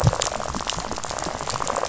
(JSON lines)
{"label": "biophony, rattle", "recorder": "SoundTrap 500"}